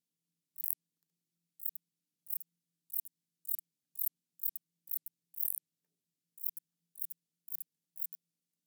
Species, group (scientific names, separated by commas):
Metrioptera buyssoni, Orthoptera